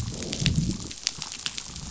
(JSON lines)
{"label": "biophony, growl", "recorder": "SoundTrap 500"}